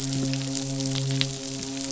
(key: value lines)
label: biophony, midshipman
recorder: SoundTrap 500